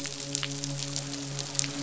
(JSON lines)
{"label": "biophony, midshipman", "recorder": "SoundTrap 500"}